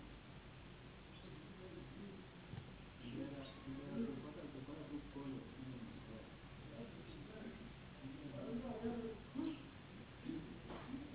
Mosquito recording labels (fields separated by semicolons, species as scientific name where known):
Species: Anopheles gambiae s.s.; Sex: female; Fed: unfed; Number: one; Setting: insect culture